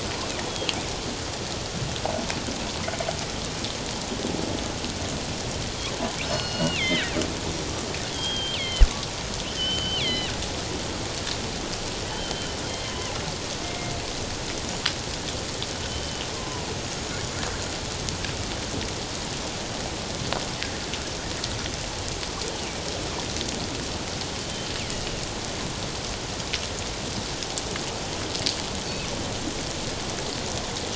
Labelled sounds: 6.2	7.2	killer whale, northern resident, G clan, 1.5 to 5.3 kHz
8.1	8.9	killer whale, northern resident, G clan, 1.9 to 4.9 kHz
9.6	10.3	killer whale, northern resident, G clan, 1.9 to 4.2 kHz
12.1	13.9	killer whale, northern resident, G clan, 0.94 to 3.3 kHz
15.9	17.5	killer whale, northern resident, G clan, 0.94 to 7.0 kHz
24.4	24.7	killer whale, northern resident, G clan, 3.0 to 3.2 kHz

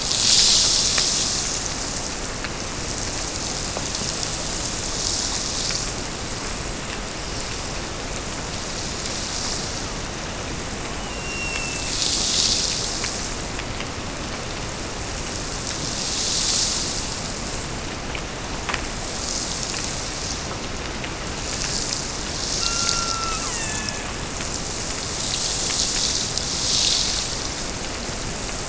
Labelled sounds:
11.1	12.1	killer whale, Bigg's (transient), Gulf of Alaska transient, 1.7 to 5.6 kHz
22.5	24.2	killer whale, Bigg's (transient), Gulf of Alaska transient, 0.66 to 4.0 kHz

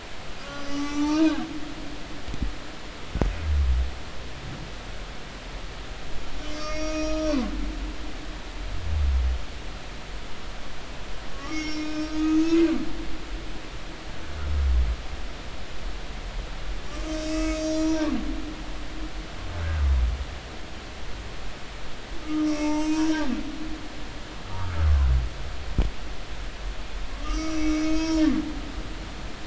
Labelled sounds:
0.4	1.9	humpback whale, 0.83 to 7.9 kHz
6.4	7.4	humpback whale, 1.2 to 6.6 kHz
11.3	12.9	humpback whale, 1.1 to 7.2 kHz
17.1	18.1	humpback whale, 0.90 to 7.6 kHz
22.2	23.3	humpback whale, 0.83 to 6.3 kHz
24.6	24.9	humpback whale, 1.1 to 1.4 kHz
27.1	28.2	humpback whale, 0.90 to 6.5 kHz

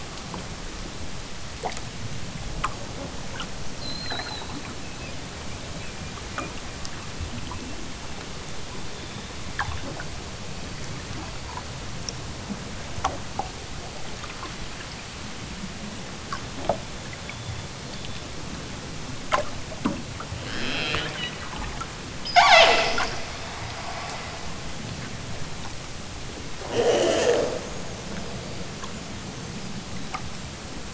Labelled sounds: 20.4	23.4	killer whale, southern Alaska resident, 0 to 8.0 kHz
26.6	27.8	killer whale, southern Alaska resident, 0 to 8.0 kHz

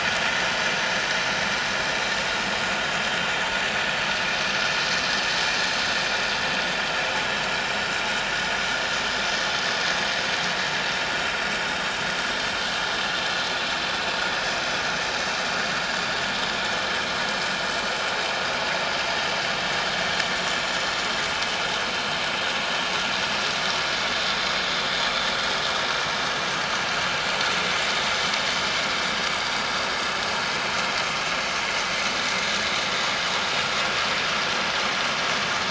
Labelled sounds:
24.6	24.9	vessel noise, 3.3 to 3.5 kHz

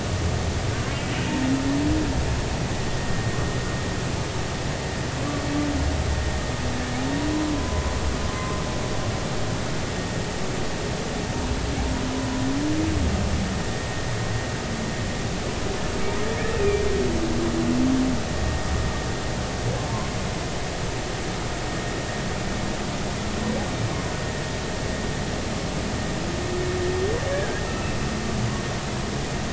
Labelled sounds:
3.0	3.3	vessel noise, 1.8 to 1.9 kHz
7.6	7.9	humpback whale, 0.96 to 1.1 kHz
8.3	8.6	humpback whale, 0.99 to 1.1 kHz
12.1	12.4	humpback whale, 0.93 to 1.0 kHz
16.5	16.8	humpback whale, 2.3 to 2.7 kHz
27.3	28.0	humpback whale, 1.2 to 2.7 kHz

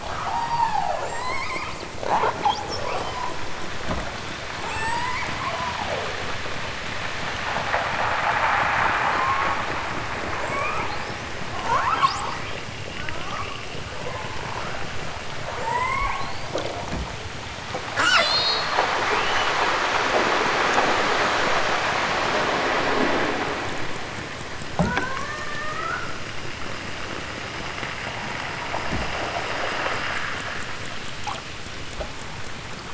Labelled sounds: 0.0	1.8	killer whale, southern Alaska resident, 0.18 to 8.0 kHz
2.8	3.3	killer whale, southern Alaska resident, 1.6 to 8.0 kHz
4.5	6.2	killer whale, southern Alaska resident, 0.18 to 8.0 kHz
9.0	9.7	killer whale, southern Alaska resident, 0.46 to 8.0 kHz
10.3	11.3	killer whale, southern Alaska resident, 0.55 to 8.0 kHz
11.6	12.4	killer whale, southern Alaska resident, 0.41 to 8.0 kHz
12.9	13.7	killer whale, southern Alaska resident, 0.69 to 3.7 kHz
15.6	16.7	killer whale, southern Alaska resident, 0.46 to 8.0 kHz
17.9	18.7	killer whale, southern Alaska resident, 0.55 to 8.0 kHz
24.7	26.2	killer whale, southern Alaska resident, 0.41 to 3.3 kHz

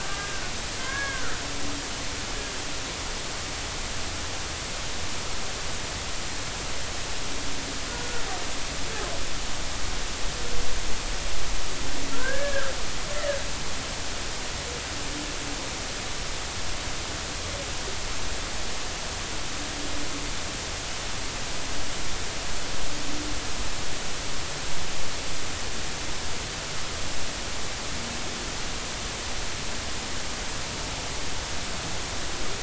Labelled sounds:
0.0	1.4	humpback whale, 0.99 to 2.3 kHz
7.9	8.2	humpback whale, 1.3 to 1.5 kHz
12.1	12.7	humpback whale, 1.2 to 1.8 kHz

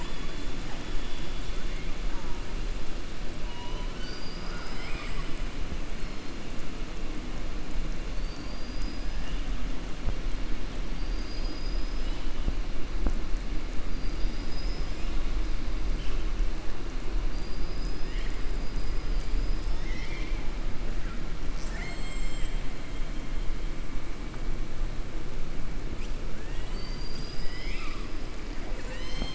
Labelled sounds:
3.9	5.4	killer whale, southern resident, 0.83 to 5.9 kHz
13.9	15.1	killer whale, southern resident, 4.4 to 5.7 kHz
17.2	18.3	killer whale, southern resident, 1.8 to 5.1 kHz

